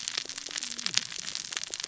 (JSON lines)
{"label": "biophony, cascading saw", "recorder": "SoundTrap 600 or HydroMoth"}